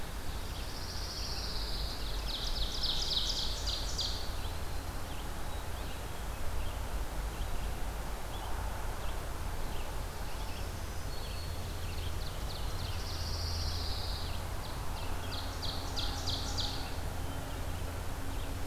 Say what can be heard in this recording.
Red-eyed Vireo, Pine Warbler, Ovenbird, Black-throated Green Warbler